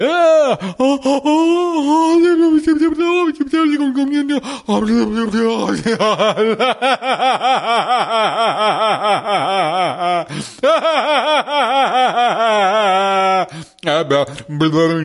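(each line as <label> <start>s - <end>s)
A man speaks loudly and incoherently. 0.0s - 5.9s
A man laughs loudly in a steady pattern. 5.9s - 14.5s
A man speaks loudly and incoherently. 14.4s - 15.0s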